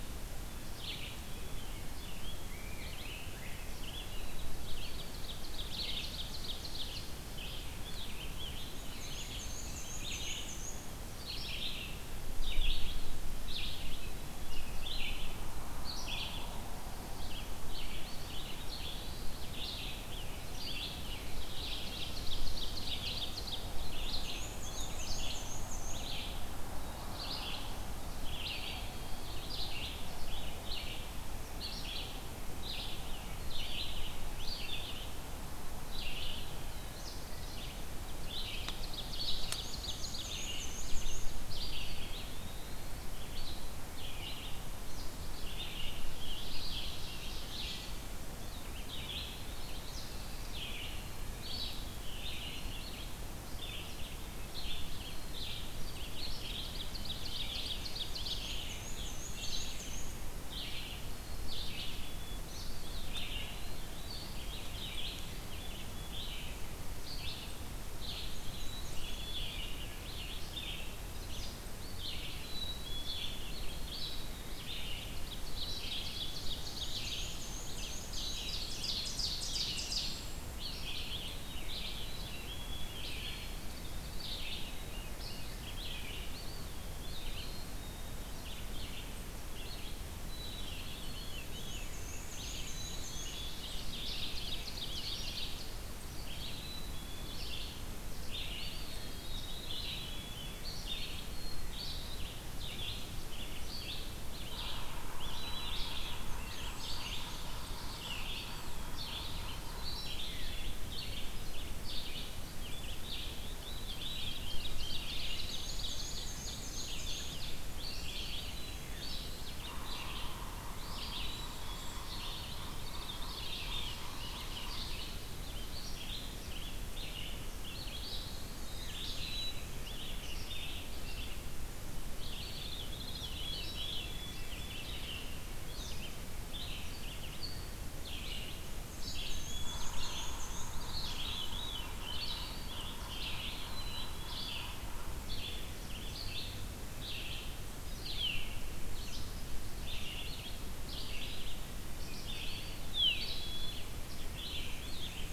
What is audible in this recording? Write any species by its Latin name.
Vireo olivaceus, Pheucticus ludovicianus, Seiurus aurocapilla, Piranga olivacea, Mniotilta varia, Contopus virens, Setophaga caerulescens, Poecile atricapillus, Catharus fuscescens, Sphyrapicus varius